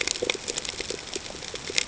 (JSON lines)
{"label": "ambient", "recorder": "HydroMoth"}